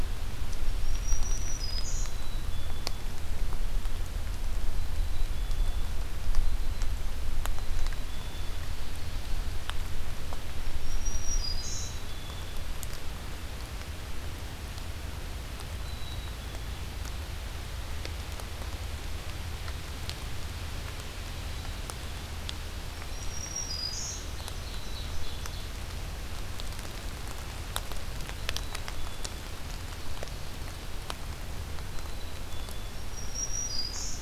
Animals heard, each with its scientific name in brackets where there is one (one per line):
Black-throated Green Warbler (Setophaga virens)
Black-capped Chickadee (Poecile atricapillus)
Ovenbird (Seiurus aurocapilla)